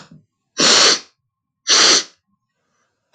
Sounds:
Sniff